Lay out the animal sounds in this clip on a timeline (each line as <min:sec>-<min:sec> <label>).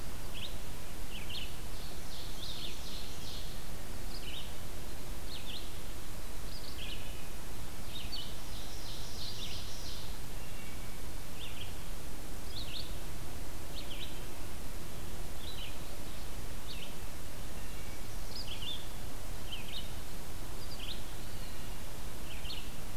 0:00.1-0:23.0 Red-eyed Vireo (Vireo olivaceus)
0:01.5-0:03.8 Ovenbird (Seiurus aurocapilla)
0:06.5-0:07.4 Wood Thrush (Hylocichla mustelina)
0:08.2-0:10.6 Ovenbird (Seiurus aurocapilla)
0:10.3-0:11.0 Wood Thrush (Hylocichla mustelina)
0:17.2-0:18.2 Wood Thrush (Hylocichla mustelina)
0:21.2-0:21.9 Wood Thrush (Hylocichla mustelina)